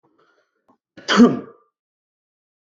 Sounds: Sneeze